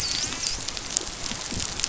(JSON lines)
{"label": "biophony, dolphin", "recorder": "SoundTrap 500"}